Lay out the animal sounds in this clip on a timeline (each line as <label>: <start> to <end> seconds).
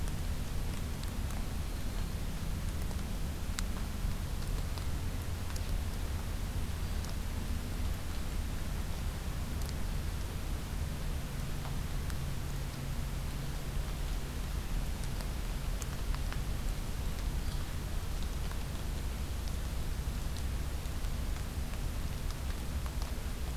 Black-throated Green Warbler (Setophaga virens): 1.5 to 2.3 seconds
Hairy Woodpecker (Dryobates villosus): 17.4 to 17.7 seconds